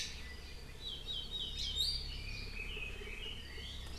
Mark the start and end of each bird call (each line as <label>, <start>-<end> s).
Iiwi (Drepanis coccinea), 1.7-2.1 s
Red-billed Leiothrix (Leiothrix lutea), 2.1-3.9 s